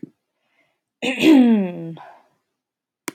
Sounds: Throat clearing